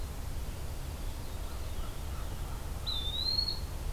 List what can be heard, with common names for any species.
American Crow, Eastern Wood-Pewee